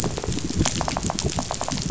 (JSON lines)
{"label": "biophony", "recorder": "SoundTrap 500"}